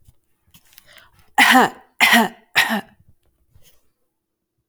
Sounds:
Cough